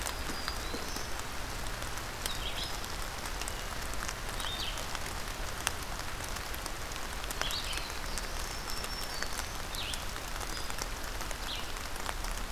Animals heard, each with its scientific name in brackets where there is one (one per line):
Red-eyed Vireo (Vireo olivaceus)
Black-throated Green Warbler (Setophaga virens)